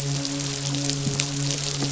{"label": "biophony, midshipman", "recorder": "SoundTrap 500"}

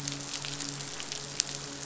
{"label": "biophony, midshipman", "recorder": "SoundTrap 500"}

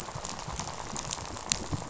{"label": "biophony, rattle", "recorder": "SoundTrap 500"}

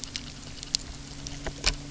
{"label": "anthrophony, boat engine", "recorder": "SoundTrap 300"}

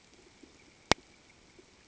{"label": "ambient", "recorder": "HydroMoth"}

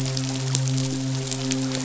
{"label": "biophony, midshipman", "recorder": "SoundTrap 500"}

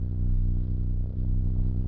{"label": "anthrophony, boat engine", "recorder": "SoundTrap 300"}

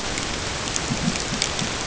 {"label": "ambient", "recorder": "HydroMoth"}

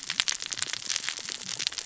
{"label": "biophony, cascading saw", "recorder": "SoundTrap 600 or HydroMoth"}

